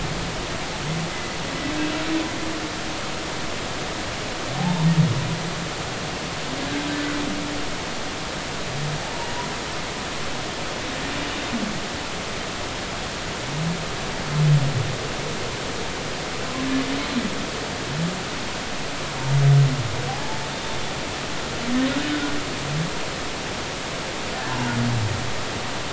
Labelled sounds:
1.1	1.4	humpback whale, 2.0 to 2.1 kHz
4.6	4.9	humpback whale, 0.80 to 1.0 kHz
20.1	20.8	humpback whale, 0.80 to 3.7 kHz

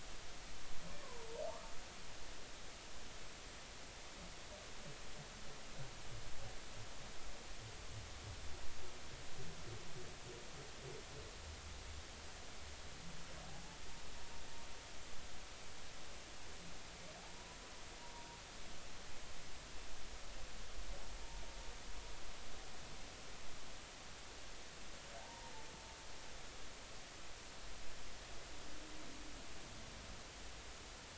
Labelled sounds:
1.0	1.3	humpback whale, 0.90 to 1.2 kHz
13.4	13.8	humpback whale, 0.80 to 0.93 kHz
18.0	18.3	humpback whale, 0.90 to 0.99 kHz
25.2	25.5	humpback whale, 0.80 to 1.1 kHz

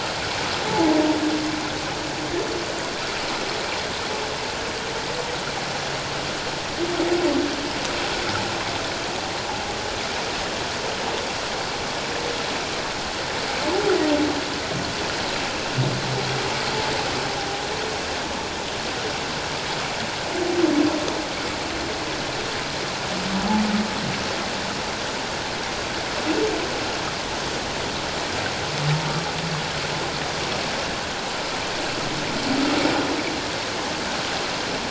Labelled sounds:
0.7	1.0	humpback whale, 0.78 to 0.97 kHz

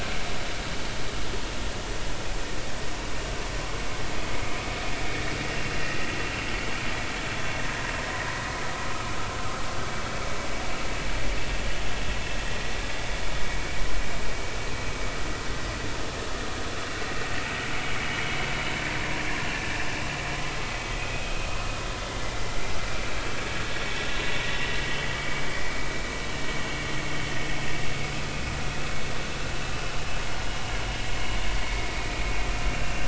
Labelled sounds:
21.0	21.3	vessel noise, 2.4 to 2.6 kHz
28.3	28.6	vessel noise, 2.4 to 2.6 kHz
32.0	32.3	vessel noise, 2.3 to 2.6 kHz
32.8	33.0	vessel noise, 2.6 to 2.8 kHz

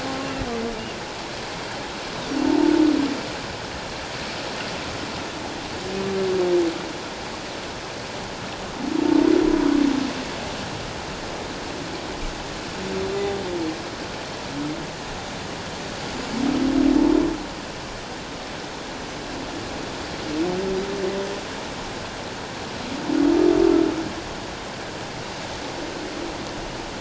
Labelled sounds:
13.1	13.4	humpback whale, 3.5 to 3.7 kHz

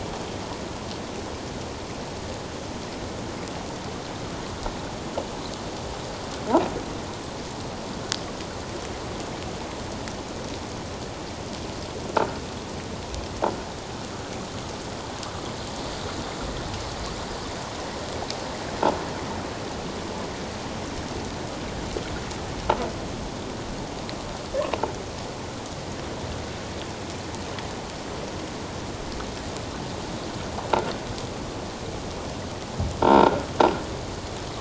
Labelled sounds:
33.0	33.5	croaking sound likely from a nearby submerged object, 0.88 to 3.8 kHz

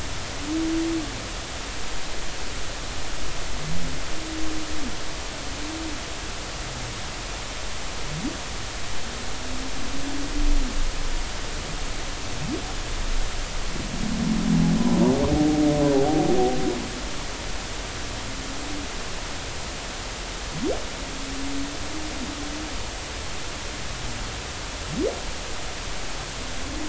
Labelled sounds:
15.9	16.2	humpback whale, 0.80 to 0.86 kHz

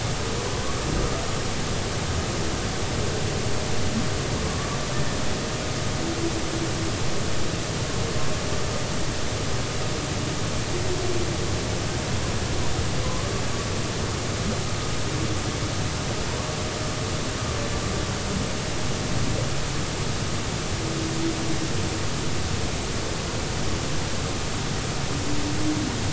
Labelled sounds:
4.9	5.2	humpback whale, 1.7 to 1.9 kHz

